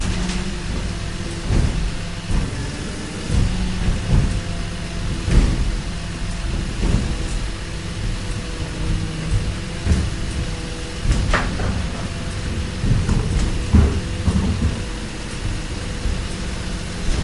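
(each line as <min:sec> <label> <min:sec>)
0:00.0 Metal being hammered. 0:17.2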